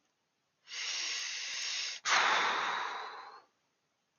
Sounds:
Sigh